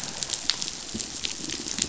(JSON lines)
{"label": "biophony", "recorder": "SoundTrap 500"}